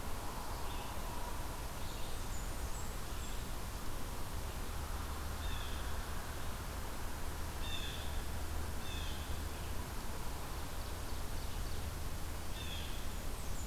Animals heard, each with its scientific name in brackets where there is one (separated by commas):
Blue Jay (Cyanocitta cristata), Red-eyed Vireo (Vireo olivaceus), Blackburnian Warbler (Setophaga fusca), Ovenbird (Seiurus aurocapilla)